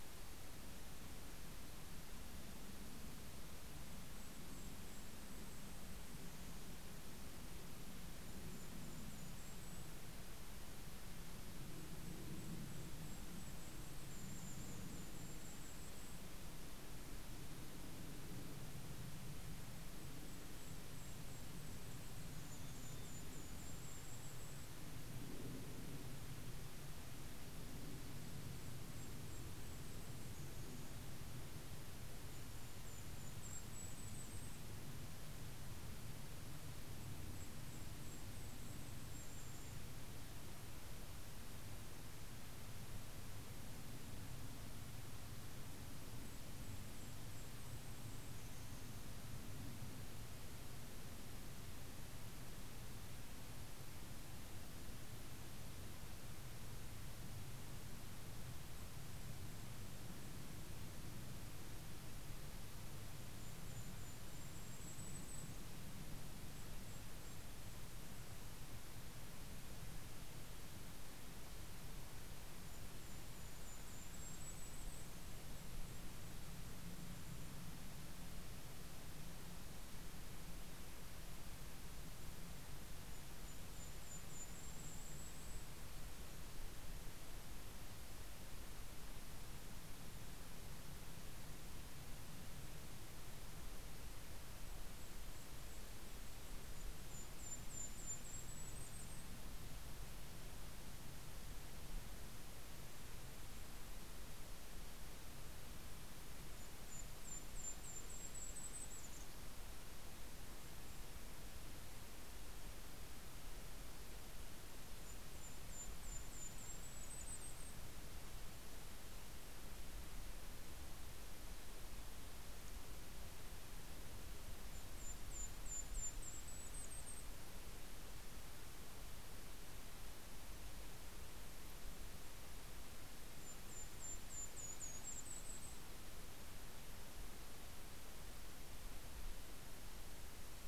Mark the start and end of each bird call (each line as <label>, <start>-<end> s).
Mountain Chickadee (Poecile gambeli), 3.4-11.0 s
Mountain Chickadee (Poecile gambeli), 11.5-16.9 s
Mountain Chickadee (Poecile gambeli), 19.4-26.3 s
Mountain Chickadee (Poecile gambeli), 27.5-31.4 s
Mountain Chickadee (Poecile gambeli), 31.9-35.8 s
Mountain Chickadee (Poecile gambeli), 36.4-40.7 s
Mountain Chickadee (Poecile gambeli), 46.6-50.3 s
Mountain Chickadee (Poecile gambeli), 58.4-60.9 s
Mountain Chickadee (Poecile gambeli), 61.7-68.8 s
Mountain Chickadee (Poecile gambeli), 72.0-78.6 s
Mountain Chickadee (Poecile gambeli), 81.8-87.1 s
Mountain Chickadee (Poecile gambeli), 93.6-99.6 s
Mountain Chickadee (Poecile gambeli), 105.5-110.8 s
Mountain Chickadee (Poecile gambeli), 114.5-119.0 s
Mountain Chickadee (Poecile gambeli), 123.5-128.7 s
Mountain Chickadee (Poecile gambeli), 131.9-137.6 s